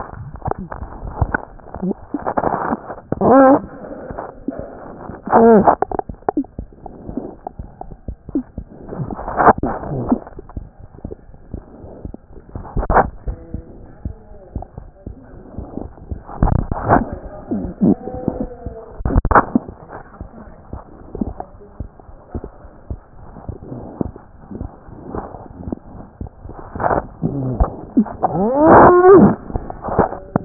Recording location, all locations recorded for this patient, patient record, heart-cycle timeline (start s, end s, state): aortic valve (AV)
aortic valve (AV)+mitral valve (MV)
#Age: Child
#Sex: Male
#Height: 79.0 cm
#Weight: 10.5 kg
#Pregnancy status: False
#Murmur: Unknown
#Murmur locations: nan
#Most audible location: nan
#Systolic murmur timing: nan
#Systolic murmur shape: nan
#Systolic murmur grading: nan
#Systolic murmur pitch: nan
#Systolic murmur quality: nan
#Diastolic murmur timing: nan
#Diastolic murmur shape: nan
#Diastolic murmur grading: nan
#Diastolic murmur pitch: nan
#Diastolic murmur quality: nan
#Outcome: Abnormal
#Campaign: 2014 screening campaign
0.00	6.04	unannotated
6.04	6.09	diastole
6.09	6.19	S1
6.19	6.36	systole
6.36	6.44	S2
6.44	6.58	diastole
6.58	6.68	S1
6.68	6.84	systole
6.84	6.93	S2
6.93	7.07	diastole
7.07	7.17	S1
7.17	7.27	systole
7.27	7.37	S2
7.37	7.57	diastole
7.57	7.66	S1
7.66	7.87	systole
7.87	7.96	S2
7.96	8.06	diastole
8.06	8.15	S1
8.15	8.27	systole
8.27	8.36	S2
8.36	8.54	diastole
8.54	30.45	unannotated